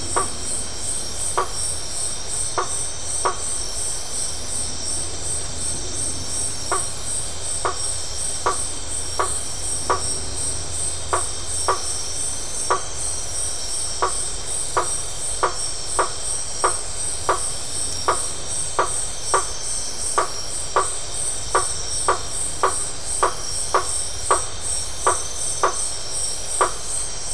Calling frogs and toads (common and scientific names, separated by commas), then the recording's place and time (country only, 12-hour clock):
blacksmith tree frog (Boana faber)
Brazil, 8:30pm